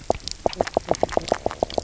{"label": "biophony, knock croak", "recorder": "SoundTrap 300"}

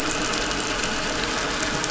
{"label": "anthrophony, boat engine", "recorder": "SoundTrap 500"}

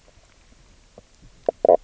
{"label": "biophony, knock croak", "recorder": "SoundTrap 300"}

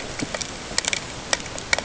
{"label": "ambient", "recorder": "HydroMoth"}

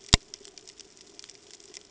{"label": "ambient", "recorder": "HydroMoth"}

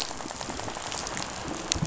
{"label": "biophony, rattle", "recorder": "SoundTrap 500"}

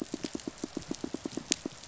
{"label": "biophony, pulse", "recorder": "SoundTrap 500"}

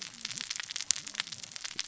{"label": "biophony, cascading saw", "recorder": "SoundTrap 600 or HydroMoth"}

